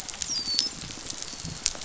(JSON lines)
{"label": "biophony", "recorder": "SoundTrap 500"}
{"label": "biophony, dolphin", "recorder": "SoundTrap 500"}